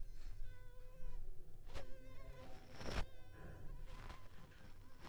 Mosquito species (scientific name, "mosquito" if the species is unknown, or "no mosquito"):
Culex pipiens complex